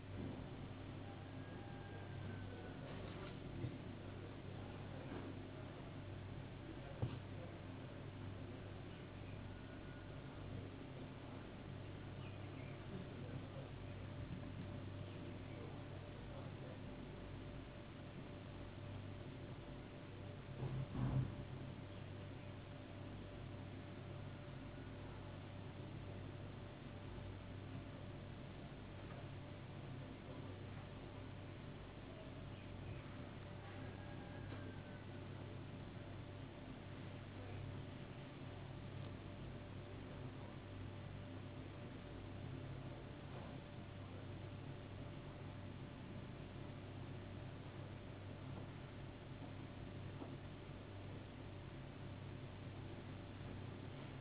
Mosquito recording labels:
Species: no mosquito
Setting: insect culture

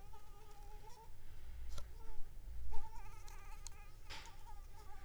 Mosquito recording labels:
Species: Anopheles arabiensis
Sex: female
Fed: unfed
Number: one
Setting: cup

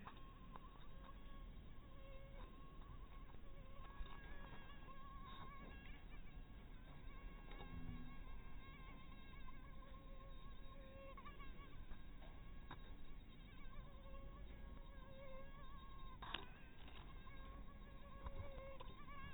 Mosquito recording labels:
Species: mosquito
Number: one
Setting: cup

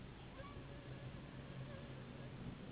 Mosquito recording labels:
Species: Anopheles gambiae s.s.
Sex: female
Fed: unfed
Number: one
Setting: insect culture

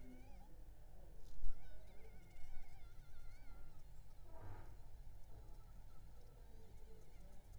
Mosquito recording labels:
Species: Aedes aegypti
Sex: female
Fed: unfed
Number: one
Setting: cup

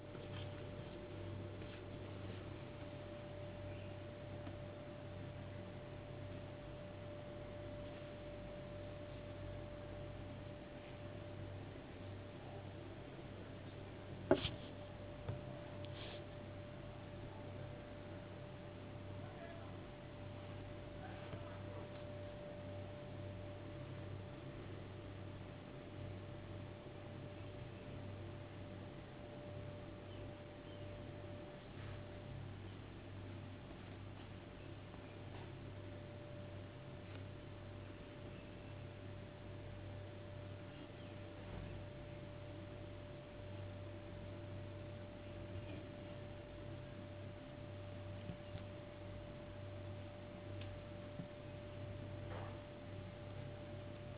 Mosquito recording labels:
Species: no mosquito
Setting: insect culture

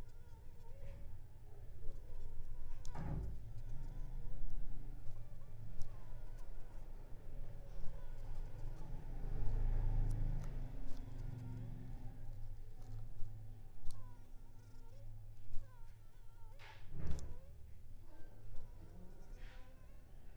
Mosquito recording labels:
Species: Anopheles funestus s.l.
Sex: female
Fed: unfed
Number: one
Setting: cup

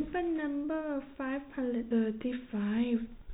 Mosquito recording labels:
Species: no mosquito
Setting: cup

